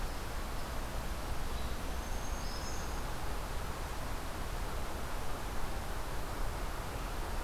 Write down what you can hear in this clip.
Black-throated Green Warbler